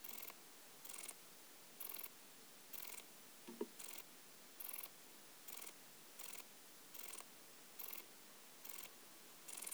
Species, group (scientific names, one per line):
Pachytrachis gracilis
Orthoptera